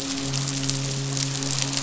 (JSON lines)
{"label": "biophony, midshipman", "recorder": "SoundTrap 500"}